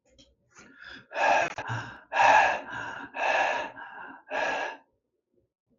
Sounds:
Sigh